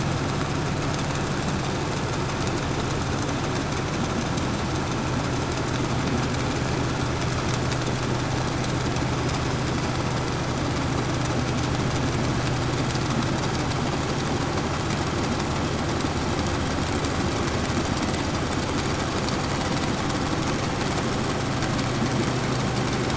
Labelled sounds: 9.0	10.5	killer whale, 5.0 to 5.3 kHz

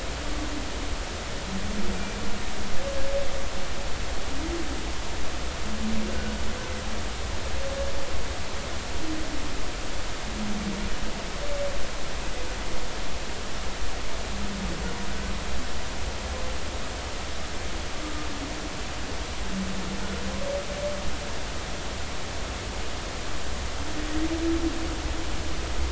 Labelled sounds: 1.9	2.2	humpback whale, 2.3 to 2.5 kHz

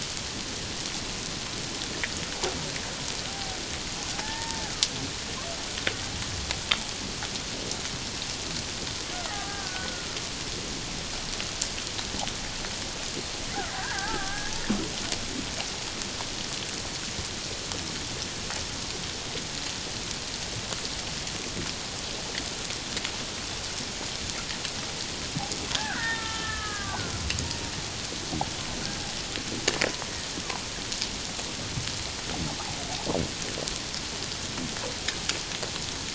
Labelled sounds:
3.3	4.7	killer whale, Bigg's (transient), 0.78 to 1.9 kHz
9.3	10.2	killer whale, Bigg's (transient), 0.78 to 1.7 kHz
13.7	14.5	killer whale, Bigg's (transient), 0.78 to 1.8 kHz
25.8	27.1	killer whale, Bigg's (transient), 0.78 to 2.0 kHz

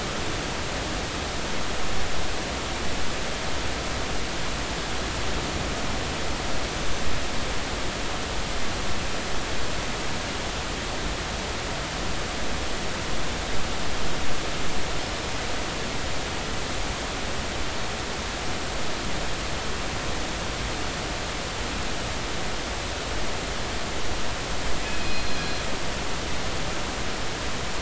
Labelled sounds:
6.7	7.0	killer whale, northern resident, 6.1 to 6.2 kHz
24.8	25.4	killer whale, northern resident, 2.4 to 4.2 kHz

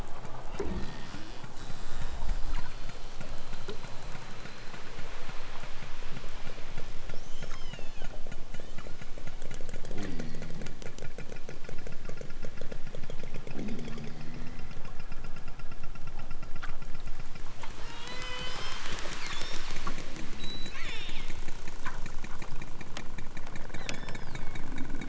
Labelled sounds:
8.5	9.0	killer whale, southern Alaska resident, 0.92 to 8.0 kHz
9.9	10.7	killer whale, southern Alaska resident, 0 to 6.5 kHz
13.5	14.8	killer whale, southern Alaska resident, 0 to 5.5 kHz
17.7	18.9	killer whale, southern Alaska resident, 0.23 to 5.5 kHz
19.2	20.0	killer whale, southern Alaska resident, 0.87 to 6.7 kHz
20.3	21.4	killer whale, southern Alaska resident, 0.64 to 8.0 kHz
23.7	24.6	killer whale, southern Alaska resident, 1.3 to 7.0 kHz

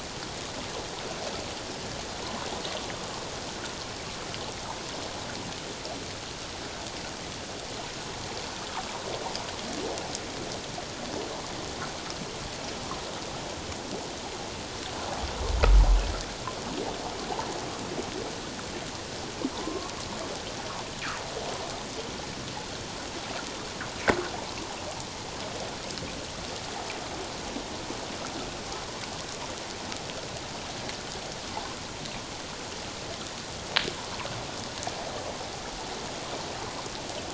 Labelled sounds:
19.5	19.9	humpback whale, 0.91 to 1.2 kHz

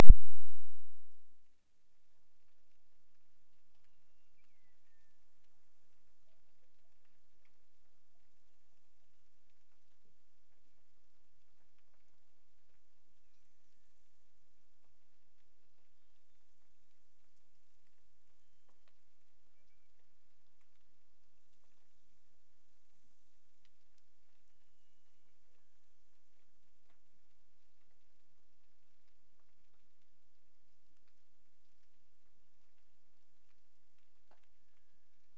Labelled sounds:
3.8	5.5	killer whale, Bigg's (transient), Gulf of Alaska transient, 1.6 to 3.0 kHz
12.9	14.3	killer whale, Bigg's (transient), Gulf of Alaska transient, 1.6 to 2.9 kHz
24.4	26.0	killer whale, Bigg's (transient), Gulf of Alaska transient, 1.5 to 3.0 kHz
33.5	35.3	killer whale, Bigg's (transient), Gulf of Alaska transient, 1.5 to 2.2 kHz

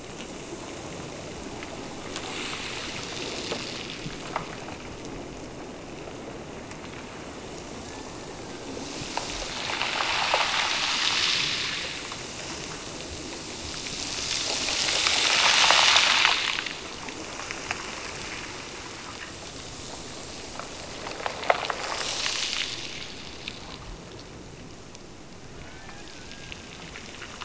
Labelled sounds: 7.9	9.0	killer whale, Bigg's (transient), Gulf of Alaska transient, 0.73 to 1.9 kHz
25.5	26.9	killer whale, Bigg's (transient), Gulf of Alaska transient, 0.64 to 3.1 kHz

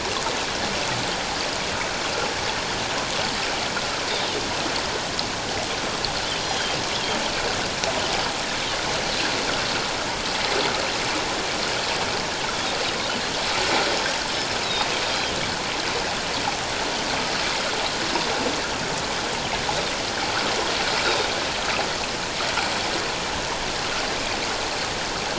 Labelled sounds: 6.4	6.8	Pacific white-sided dolphin, 3.1 to 5.8 kHz
14.6	14.9	Pacific white-sided dolphin, 3.6 to 4.0 kHz
21.0	21.3	Pacific white-sided dolphin, 3.6 to 4.0 kHz

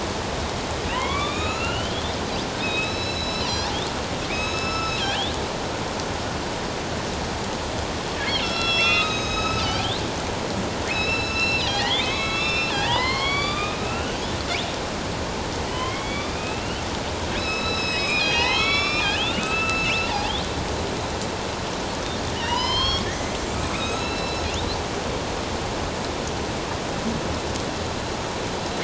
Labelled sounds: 0.9	2.1	killer whale, northern resident, A clan, AB subclan, 0.91 to 6.9 kHz
2.6	3.7	killer whale, northern resident, A clan, AB subclan, 2.4 to 8.0 kHz
4.3	5.3	killer whale, northern resident, A clan, AB subclan, 1.3 to 7.9 kHz
8.2	10.0	killer whale, northern resident, A clan, AB subclan, 1.2 to 6.5 kHz
10.9	14.2	killer whale, northern resident, A clan, AB subclan, 0.78 to 8.0 kHz
15.7	16.8	killer whale, northern resident, A clan, AB subclan, 1.9 to 3.7 kHz
17.4	20.4	killer whale, northern resident, A clan, AB subclan, 0.78 to 7.9 kHz
22.4	24.5	killer whale, northern resident, A clan, AB subclan, 0.91 to 8.0 kHz

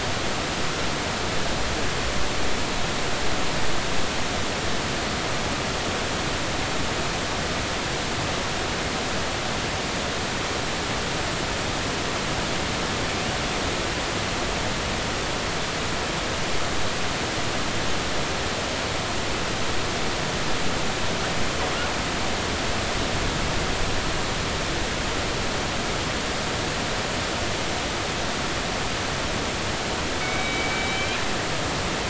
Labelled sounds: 30.2	31.2	killer whale, northern resident, G clan, 2.2 to 3.8 kHz

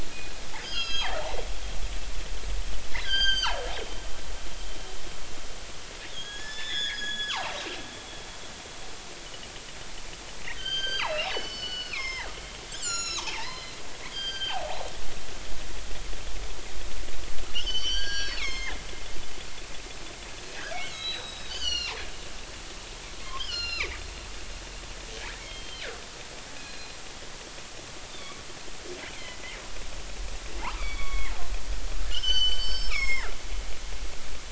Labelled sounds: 0.6	1.2	killer whale, northern resident, G clan, 0.80 to 6.6 kHz
2.9	3.6	killer whale, northern resident, G clan, 0.80 to 8.0 kHz
6.1	7.5	killer whale, northern resident, G clan, 0.80 to 7.0 kHz
10.6	12.3	killer whale, northern resident, G clan, 0.80 to 6.4 kHz
12.7	14.9	killer whale, northern resident, G clan, 0.80 to 7.7 kHz
17.5	18.8	killer whale, northern resident, G clan, 1.0 to 6.5 kHz
20.7	22.0	killer whale, northern resident, G clan, 1.3 to 7.9 kHz
23.4	23.9	killer whale, northern resident, G clan, 1.1 to 7.1 kHz
25.4	25.9	killer whale, northern resident, G clan, 2.1 to 3.3 kHz
26.6	27.0	killer whale, northern resident, G clan, 2.4 to 4.2 kHz
28.1	28.4	killer whale, northern resident, G clan, 3.3 to 3.7 kHz
29.1	29.4	killer whale, northern resident, G clan, 2.0 to 2.6 kHz
30.6	31.3	killer whale, northern resident, G clan, 0.80 to 4.7 kHz
32.1	33.4	killer whale, northern resident, G clan, 0.83 to 7.7 kHz

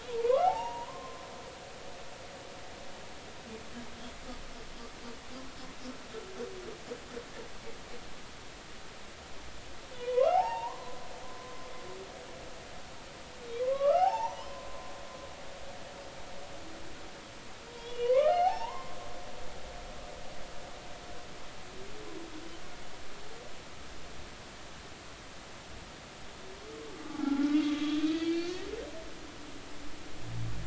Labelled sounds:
0.2	1.2	humpback whale, 0.80 to 1.5 kHz
9.9	11.0	humpback whale, 0.80 to 2.9 kHz
13.6	14.9	humpback whale, 0.80 to 1.7 kHz
17.7	18.9	humpback whale, 0.80 to 4.4 kHz
27.1	28.6	humpback whale, 0.80 to 4.7 kHz

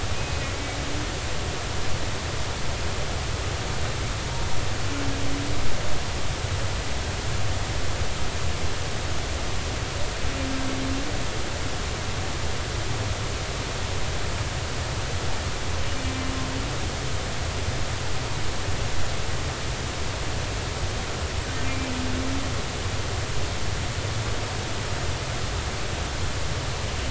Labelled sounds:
0.1	0.5	humpback whale, 2.4 to 2.6 kHz
21.7	21.9	humpback whale, 2.3 to 2.4 kHz

